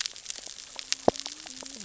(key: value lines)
label: biophony, cascading saw
recorder: SoundTrap 600 or HydroMoth